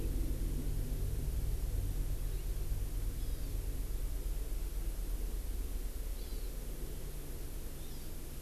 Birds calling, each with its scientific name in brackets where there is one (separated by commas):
Hawaii Amakihi (Chlorodrepanis virens)